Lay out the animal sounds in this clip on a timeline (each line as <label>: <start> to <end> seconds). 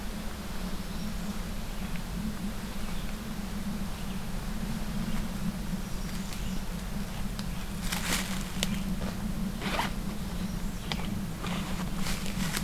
American Redstart (Setophaga ruticilla): 5.6 to 6.6 seconds